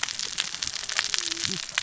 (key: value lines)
label: biophony, cascading saw
recorder: SoundTrap 600 or HydroMoth